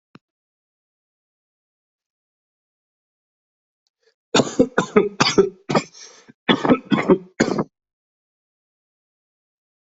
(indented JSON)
{
  "expert_labels": [
    {
      "quality": "ok",
      "cough_type": "wet",
      "dyspnea": false,
      "wheezing": false,
      "stridor": false,
      "choking": false,
      "congestion": false,
      "nothing": true,
      "diagnosis": "lower respiratory tract infection",
      "severity": "mild"
    }
  ],
  "age": 28,
  "gender": "male",
  "respiratory_condition": false,
  "fever_muscle_pain": false,
  "status": "healthy"
}